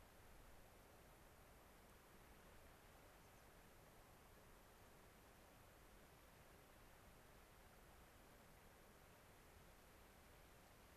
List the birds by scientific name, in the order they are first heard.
Zonotrichia leucophrys